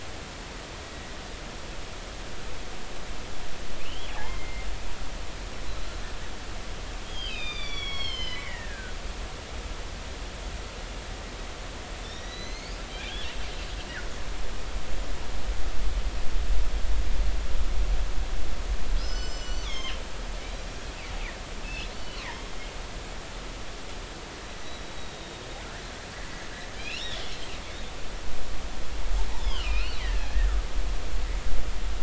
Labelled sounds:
3.8	4.7	killer whale, northern resident, G clan, call N23i, 0.80 to 3.4 kHz
7.0	9.0	killer whale, northern resident, G clan, GG subclan, call N23ii, 1.0 to 5.9 kHz
12.0	12.8	killer whale, northern resident, G clan, 1.8 to 6.7 kHz
19.0	20.0	killer whale, northern resident, G clan, GG subclan, call N23ii, 2.0 to 7.6 kHz
21.6	22.3	killer whale, northern resident, G clan, call N24i, 2.5 to 3.1 kHz
24.8	25.5	killer whale, northern resident, G clan, 3.6 to 3.9 kHz
26.8	27.0	killer whale, northern resident, G clan, 2.3 to 3.0 kHz
29.4	30.5	killer whale, northern resident, G clan, 1.2 to 4.6 kHz

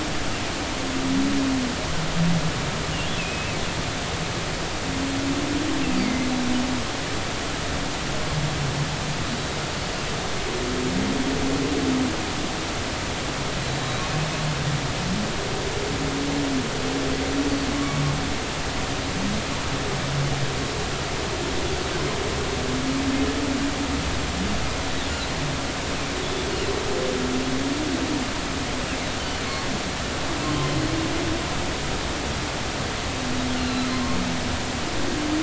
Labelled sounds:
3.2	3.6	humpback whale, 2.4 to 2.7 kHz
6.0	6.3	humpback whale, 2.0 to 2.3 kHz
13.6	14.0	humpback whale, 3.8 to 4.1 kHz
17.7	18.0	humpback whale, 1.1 to 1.2 kHz
29.2	29.4	humpback whale, 2.8 to 3.1 kHz
33.6	34.2	humpback whale, 0.93 to 2.8 kHz

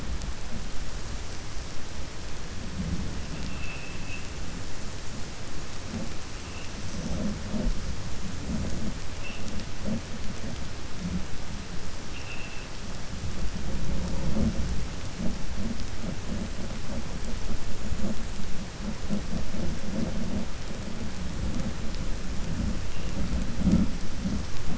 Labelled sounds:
3.4	4.2	vessel noise, 2.2 to 3.5 kHz
12.0	12.7	vessel noise, 2.4 to 3.5 kHz

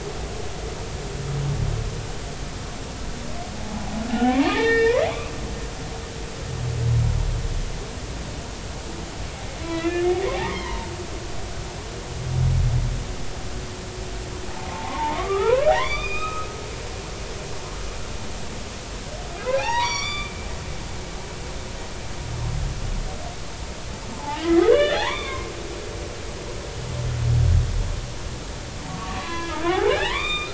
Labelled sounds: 3.6	5.1	humpback whale, 0.80 to 5.3 kHz
9.6	10.9	humpback whale, 0.86 to 3.5 kHz
14.7	16.5	humpback whale, 0.80 to 5.1 kHz
19.4	20.4	humpback whale, 0.80 to 7.1 kHz
24.2	25.5	humpback whale, 0.80 to 3.6 kHz
28.9	30.5	humpback whale, 0.80 to 7.4 kHz

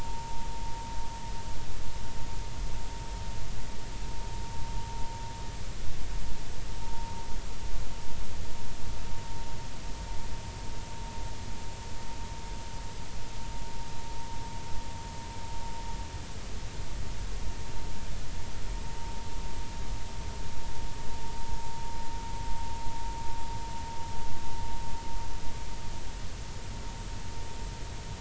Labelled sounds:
6.8	7.1	vessel noise, 0.86 to 0.96 kHz

